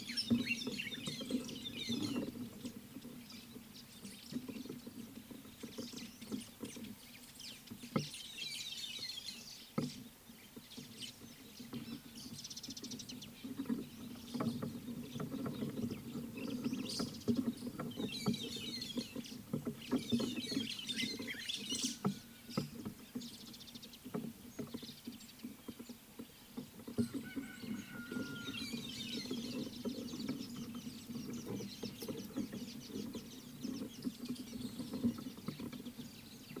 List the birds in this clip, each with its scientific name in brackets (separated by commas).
White-browed Sparrow-Weaver (Plocepasser mahali), Mariqua Sunbird (Cinnyris mariquensis), White-headed Buffalo-Weaver (Dinemellia dinemelli)